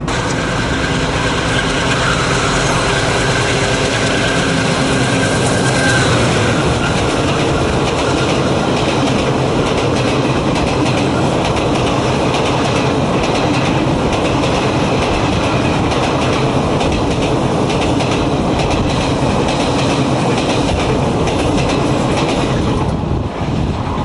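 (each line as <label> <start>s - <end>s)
An engine is slowing down as a car comes to a stop. 2.0s - 5.8s
People talking and walking in the distance. 5.6s - 8.0s
Two thudding sounds of a train moving on rails. 7.6s - 23.2s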